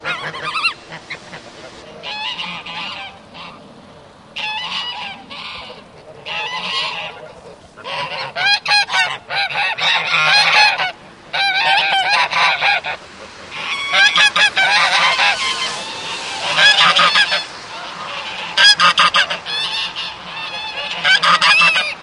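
Geese cackle quietly in the background on repeat. 0:00.0 - 0:07.4
A car drives by quietly. 0:00.7 - 0:07.3
Geese cackle loudly nearby on repeat. 0:07.9 - 0:17.5
A car drives by quietly. 0:13.0 - 0:22.0
Geese cackle repeatedly at a moderate volume in the background. 0:17.5 - 0:22.0
Geese cackle loudly nearby on repeat. 0:18.5 - 0:20.2
Geese cackle loudly nearby on repeat. 0:21.0 - 0:22.0

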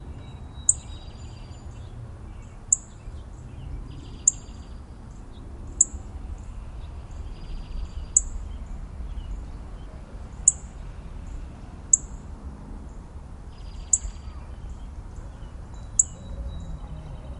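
A group of birds sing lively and repeatedly in the background. 0:00.0 - 0:11.2
A bird chirps once in the background. 0:00.5 - 0:00.9
A bird chirps once in the background. 0:02.5 - 0:02.9
A bird chirps once in the background. 0:04.1 - 0:04.4
A bird chirps once in the background. 0:05.7 - 0:06.0
A bird chirps once in the background. 0:08.0 - 0:08.3
A bird chirps once in the background. 0:10.3 - 0:10.6
An electronic device emits a repetitive noise. 0:11.2 - 0:13.4
A bird chirps once in the background. 0:11.8 - 0:12.1
A group of birds sing lively and repeatedly in the background. 0:13.4 - 0:17.4
A bird chirps once in the background. 0:13.8 - 0:14.1
A cuckoo sings rhythmically in the background. 0:15.2 - 0:17.4
A bird chirps once in the background. 0:15.8 - 0:16.2

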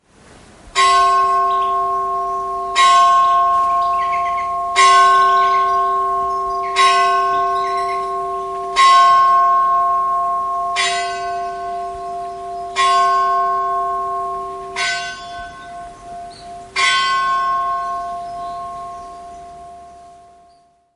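A church bell is ringing. 0:00.6 - 0:06.5
A church bell rings and fades out. 0:06.6 - 0:08.8
A church bell rings in the distance. 0:08.9 - 0:14.3
A low-intensity church bell is ringing. 0:14.7 - 0:16.3
A church bell is ringing in the distance. 0:16.5 - 0:18.6
A small, intensity church bell ringing in its final phase. 0:18.8 - 0:20.6

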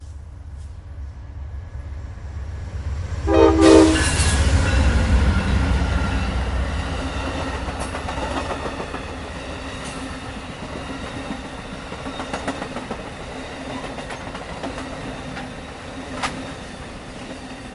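Two train sirens blaring with a sharp, echoing sound. 0:03.1 - 0:04.2
A train passes by, producing a deep, rumbling mechanical noise with fluctuating loudness. 0:04.3 - 0:17.7

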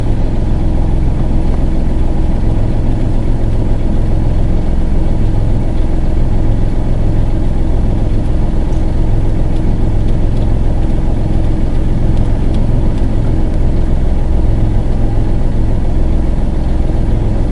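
Car engine idling. 0:00.0 - 0:17.5

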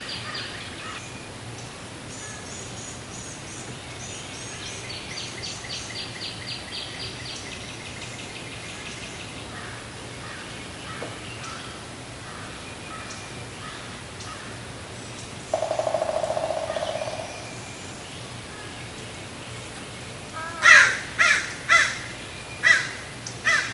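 Overlapping bird sounds in the distance. 0:00.0 - 0:20.3
The smooth sound of flowing water. 0:00.0 - 0:23.7
A woodpecker rapidly pecking a tree. 0:15.5 - 0:17.3
A crow is cawing repeatedly. 0:20.5 - 0:23.7

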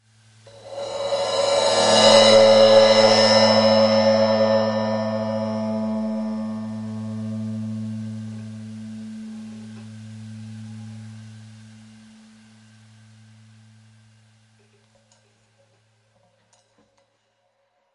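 A cymbal fades away slowly. 0:00.8 - 0:05.8

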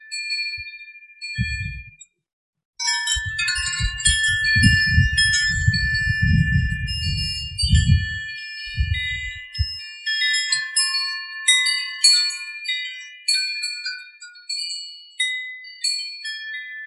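Wind chimes playing in the wind. 0:00.1 - 0:16.9
Wind blowing outdoors. 0:00.5 - 0:10.7

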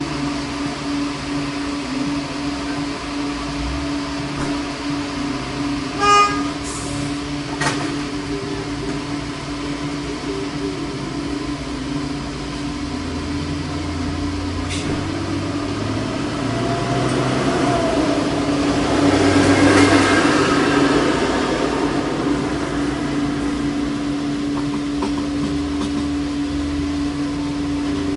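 Gas pumps operating in a monotonous, monotonic manner. 0:00.0 - 0:28.2
A car honks loudly once. 0:05.5 - 0:07.3
A car passes by loudly and fades away near a petrol station. 0:14.9 - 0:25.2

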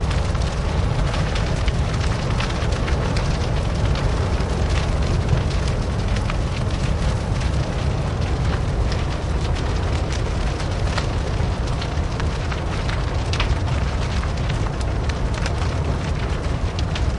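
A large fire burns with varying intensity, producing snapping, popping, and crackling sounds. 0:00.0 - 0:17.2

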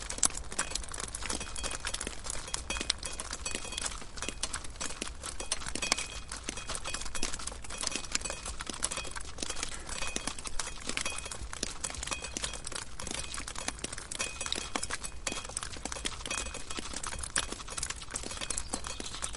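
Metal objects clinking repeatedly. 0:00.0 - 0:19.4
Water drops drip repeatedly on a surface. 0:00.0 - 0:19.4

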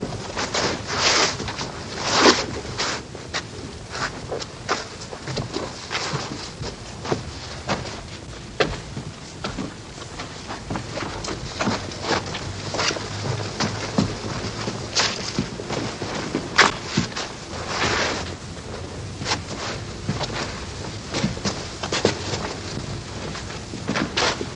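Irregular footsteps on a stony surface. 0:00.0 - 0:24.6

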